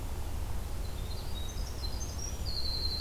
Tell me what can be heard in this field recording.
Winter Wren